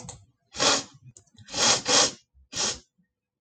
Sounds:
Sniff